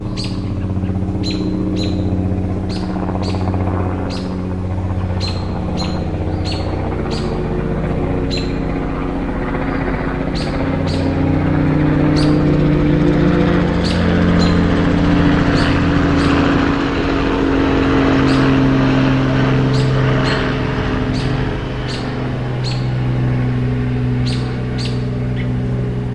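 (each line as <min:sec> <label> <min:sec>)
0:00.0 A helicopter flies from a distance, coming closer and growing louder. 0:19.6
0:00.0 Several birds repeatedly chirping. 0:26.1
0:19.4 A helicopter flying away and fading slowly. 0:26.1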